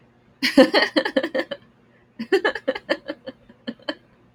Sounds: Laughter